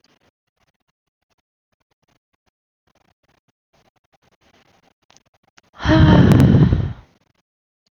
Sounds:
Sigh